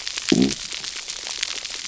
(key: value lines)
label: biophony, low growl
recorder: SoundTrap 300